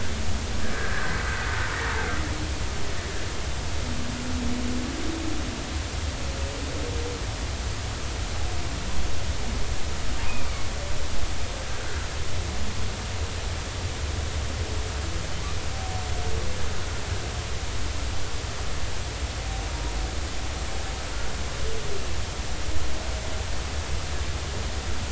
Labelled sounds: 0.6	1.1	humpback whale, 1.5 to 1.8 kHz
11.3	12.0	humpback whale, 1.4 to 2.6 kHz

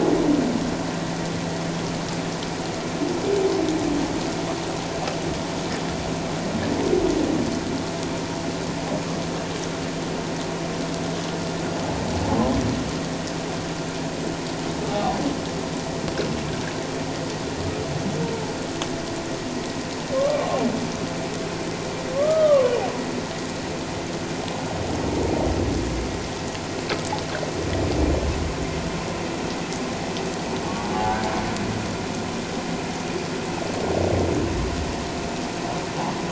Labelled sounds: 14.9	15.2	humpback whale, 0.78 to 1.2 kHz
20.1	20.5	humpback whale, 1.0 to 1.3 kHz
22.1	22.7	humpback whale, 0.97 to 1.3 kHz
30.9	31.3	humpback whale, 0.78 to 1.7 kHz

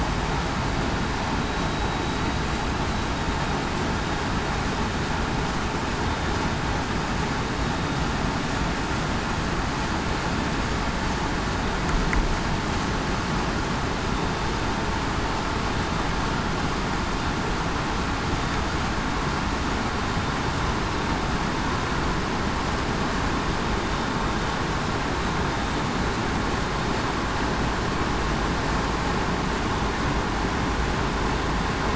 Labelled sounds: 14.1	14.4	vessel noise, 3.6 to 3.7 kHz

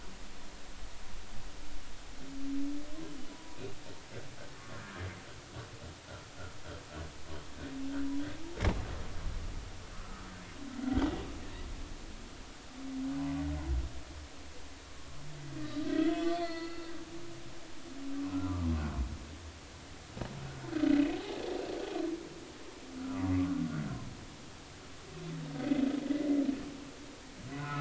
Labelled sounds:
3.3	3.6	humpback whale, 0.93 to 1.0 kHz
4.6	5.1	humpback whale, 1.0 to 1.9 kHz
10.0	10.3	humpback whale, 1.1 to 1.4 kHz
10.9	11.2	humpback whale, 1.9 to 2.1 kHz
15.6	16.9	humpback whale, 1.2 to 4.6 kHz
18.3	18.7	humpback whale, 1.1 to 1.4 kHz
27.6	27.7	humpback whale, 1.2 to 1.5 kHz

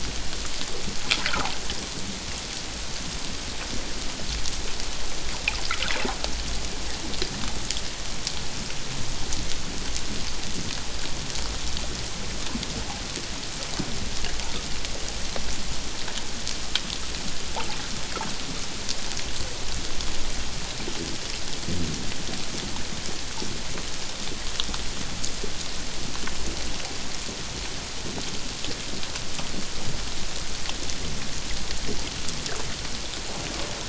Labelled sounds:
1.2	1.6	water noise, 0.78 to 1.7 kHz

